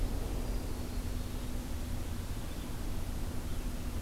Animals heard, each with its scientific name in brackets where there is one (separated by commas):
Hermit Thrush (Catharus guttatus), Red-eyed Vireo (Vireo olivaceus)